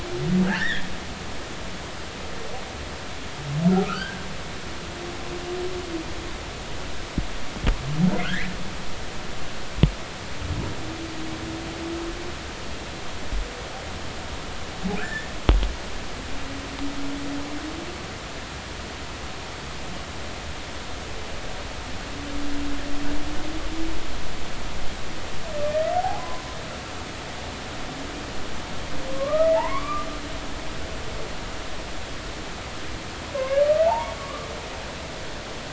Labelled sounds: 0.4	0.9	humpback whale, 1.4 to 3.8 kHz
3.8	4.2	humpback whale, 1.2 to 1.7 kHz
8.3	8.6	humpback whale, 1.3 to 2.4 kHz
15.0	15.3	humpback whale, 1.3 to 1.9 kHz
25.7	26.6	humpback whale, 0.80 to 2.0 kHz
29.1	30.1	humpback whale, 0.80 to 2.4 kHz
33.8	34.5	humpback whale, 0.80 to 1.2 kHz

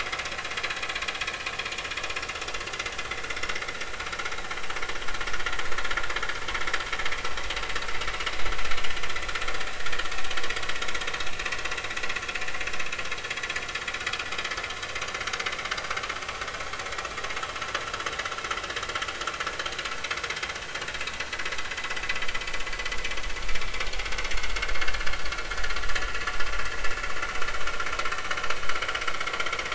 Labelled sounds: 24.8	25.1	vessel noise, 1.6 to 1.8 kHz

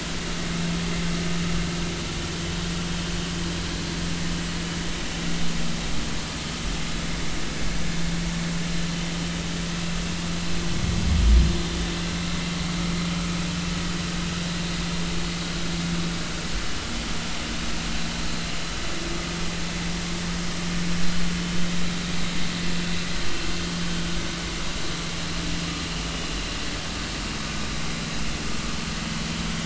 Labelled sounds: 10.3	10.5	vessel noise, 4.0 to 4.1 kHz

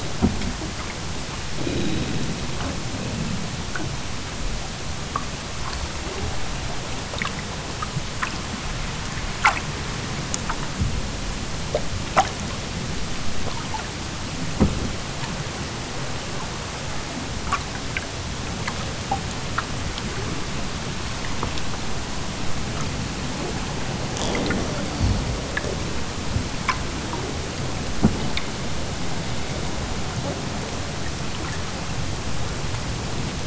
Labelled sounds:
1.4	2.3	killer whale, southern Alaska resident, 0 to 4.3 kHz
24.0	25.3	killer whale, southern Alaska resident, 0 to 7.2 kHz

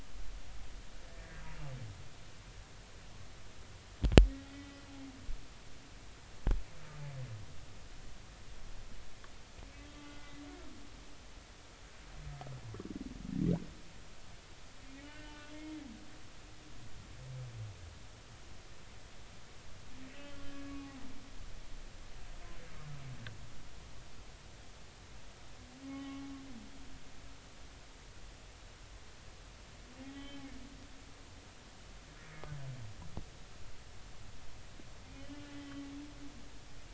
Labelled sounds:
4.5	4.8	humpback whale, 1.9 to 2.0 kHz
10.0	10.4	humpback whale, 1.4 to 2.1 kHz
15.0	15.3	humpback whale, 1.4 to 1.9 kHz
20.5	21.0	humpback whale, 1.1 to 1.7 kHz
25.8	26.2	humpback whale, 0.80 to 2.3 kHz
30.1	30.4	humpback whale, 1.6 to 3.2 kHz
35.5	35.8	humpback whale, 1.9 to 3.2 kHz

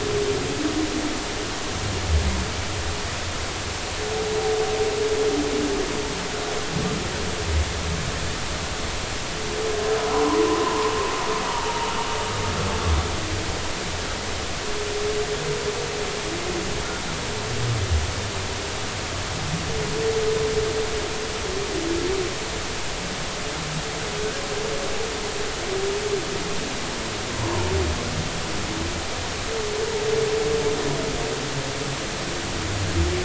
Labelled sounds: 10.5	10.9	humpback whale, 0.90 to 1.1 kHz
27.4	27.7	humpback whale, 0.86 to 1.1 kHz

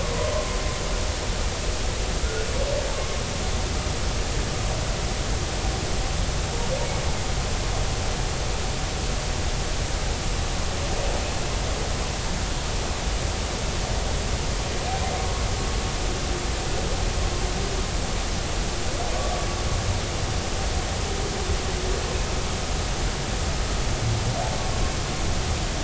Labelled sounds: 0.3	0.6	humpback whale, 0.96 to 1.1 kHz

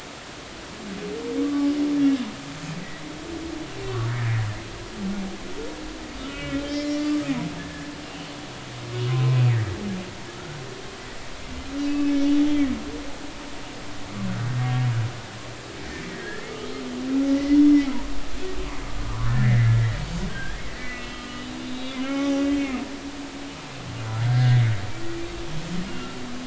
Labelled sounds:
1.4	1.7	humpback whale, 1.1 to 1.2 kHz
3.8	4.3	humpback whale, 0.99 to 2.0 kHz
6.2	8.3	humpback whale, 1.3 to 5.4 kHz
9.1	9.4	humpback whale, 0.99 to 1.1 kHz
11.9	12.1	humpback whale, 2.5 to 2.7 kHz
14.5	14.8	humpback whale, 1.8 to 2.0 kHz
16.1	16.4	humpback whale, 1.6 to 2.0 kHz
19.1	19.9	humpback whale, 0.96 to 2.2 kHz
20.3	22.6	humpback whale, 0.80 to 3.9 kHz
24.2	24.6	humpback whale, 1.5 to 2.0 kHz
25.9	26.2	humpback whale, 1.3 to 2.9 kHz

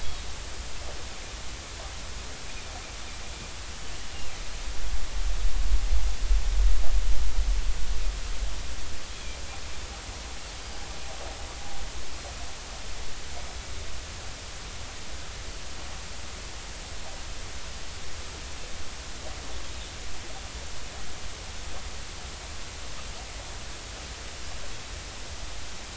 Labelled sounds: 9.1	9.4	Pacific white-sided dolphin, 2.3 to 2.6 kHz

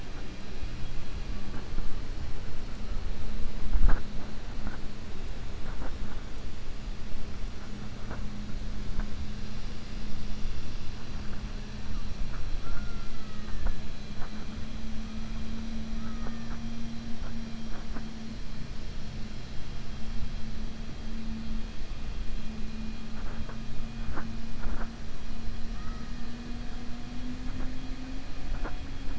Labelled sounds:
0.4	1.2	killer whale, 2.4 to 4.6 kHz

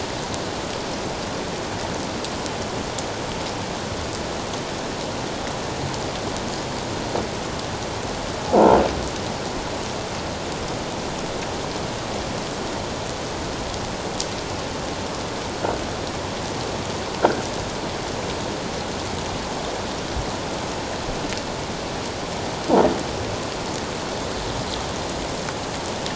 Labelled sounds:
8.5	8.8	croaking sound likely from a nearby submerged object, 0.78 to 1.0 kHz

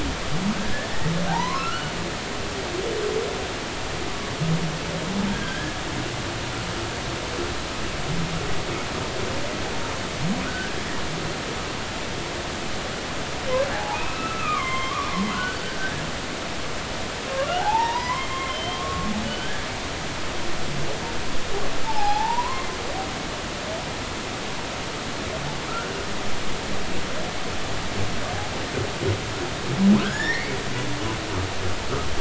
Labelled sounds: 0.5	1.9	humpback whale, 0.80 to 1.8 kHz
5.3	5.8	humpback whale, 1.5 to 1.8 kHz
10.4	10.8	humpback whale, 1.3 to 1.7 kHz
13.7	16.0	humpback whale, 0.80 to 4.6 kHz
17.4	19.7	humpback whale, 0.80 to 3.3 kHz
21.8	22.7	humpback whale, 0.80 to 1.2 kHz
30.0	30.6	humpback whale, 1.3 to 2.3 kHz

